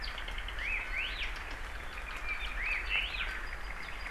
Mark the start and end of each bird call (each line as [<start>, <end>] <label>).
[0.00, 0.50] Apapane (Himatione sanguinea)
[0.60, 1.30] Hawaii Elepaio (Chasiempis sandwichensis)
[0.80, 1.20] Iiwi (Drepanis coccinea)
[1.20, 4.10] Apapane (Himatione sanguinea)
[2.60, 3.30] Hawaii Elepaio (Chasiempis sandwichensis)